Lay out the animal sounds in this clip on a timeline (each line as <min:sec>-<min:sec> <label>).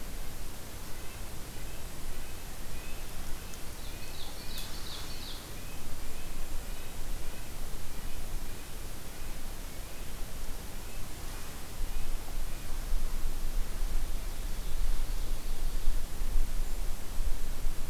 0:00.7-0:11.7 Red-breasted Nuthatch (Sitta canadensis)
0:03.4-0:05.4 Ovenbird (Seiurus aurocapilla)
0:05.8-0:07.1 Golden-crowned Kinglet (Regulus satrapa)
0:10.6-0:12.2 Golden-crowned Kinglet (Regulus satrapa)
0:13.9-0:15.9 Ovenbird (Seiurus aurocapilla)
0:16.5-0:17.9 Golden-crowned Kinglet (Regulus satrapa)